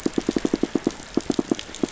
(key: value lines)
label: biophony, pulse
recorder: SoundTrap 500